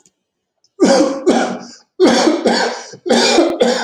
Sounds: Cough